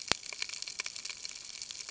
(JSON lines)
{"label": "ambient", "recorder": "HydroMoth"}